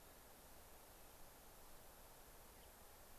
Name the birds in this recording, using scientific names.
Turdus migratorius